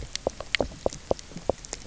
{"label": "biophony, knock", "recorder": "SoundTrap 300"}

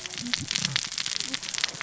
{"label": "biophony, cascading saw", "recorder": "SoundTrap 600 or HydroMoth"}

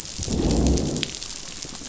{"label": "biophony, growl", "recorder": "SoundTrap 500"}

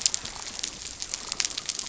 {"label": "biophony", "recorder": "SoundTrap 300"}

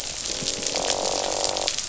{"label": "biophony, croak", "recorder": "SoundTrap 500"}
{"label": "biophony", "recorder": "SoundTrap 500"}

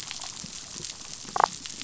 {"label": "biophony, damselfish", "recorder": "SoundTrap 500"}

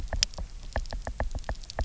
{"label": "biophony, knock", "recorder": "SoundTrap 300"}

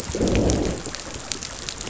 {"label": "biophony, growl", "recorder": "SoundTrap 500"}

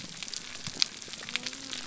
{"label": "biophony", "recorder": "SoundTrap 300"}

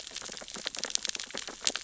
{"label": "biophony, sea urchins (Echinidae)", "recorder": "SoundTrap 600 or HydroMoth"}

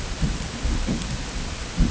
{"label": "ambient", "recorder": "HydroMoth"}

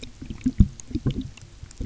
{"label": "geophony, waves", "recorder": "SoundTrap 300"}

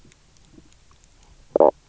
{"label": "biophony, knock croak", "recorder": "SoundTrap 300"}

